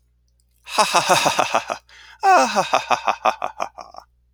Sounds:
Laughter